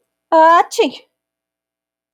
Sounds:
Sneeze